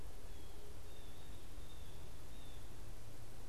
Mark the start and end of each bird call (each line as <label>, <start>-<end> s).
Blue Jay (Cyanocitta cristata), 0.0-3.5 s